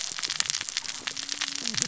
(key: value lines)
label: biophony, cascading saw
recorder: SoundTrap 600 or HydroMoth